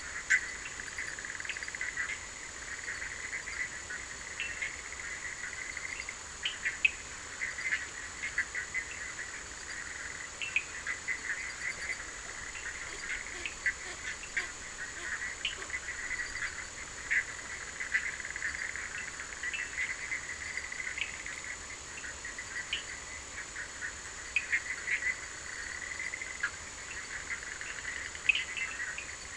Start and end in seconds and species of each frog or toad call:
0.0	1.6	Sphaenorhynchus surdus
0.0	29.3	Boana bischoffi
4.3	4.8	Sphaenorhynchus surdus
6.3	8.0	Sphaenorhynchus surdus
10.3	10.8	Sphaenorhynchus surdus
12.4	18.2	Sphaenorhynchus surdus
20.9	25.2	Sphaenorhynchus surdus
27.9	29.3	Sphaenorhynchus surdus
Atlantic Forest, Brazil, 11:30pm

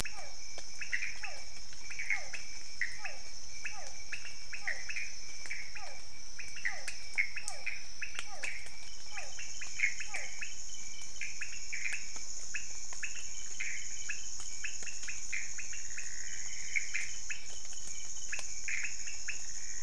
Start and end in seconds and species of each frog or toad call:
0.0	10.6	Physalaemus cuvieri
0.0	19.8	Leptodactylus podicipinus
0.0	19.8	Pithecopus azureus
Cerrado, Brazil, 1am

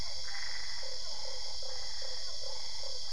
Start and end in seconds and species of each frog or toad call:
0.0	3.1	Physalaemus cuvieri
0.2	3.1	Boana albopunctata
0.8	3.1	Boana lundii
Cerrado, Brazil, ~10pm

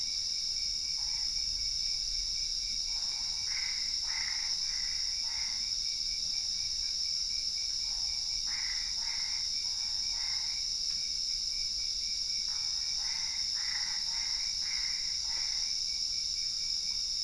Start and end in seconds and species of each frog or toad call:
2.7	5.8	Boana albopunctata
7.9	10.8	Boana albopunctata
12.5	15.8	Boana albopunctata
Cerrado, Brazil, 1:30am

